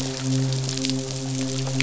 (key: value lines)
label: biophony, midshipman
recorder: SoundTrap 500